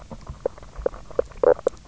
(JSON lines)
{"label": "biophony, knock croak", "recorder": "SoundTrap 300"}